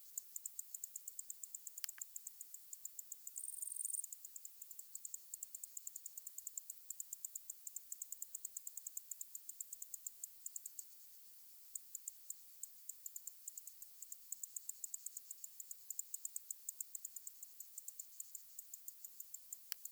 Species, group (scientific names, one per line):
Decticus albifrons
Orthoptera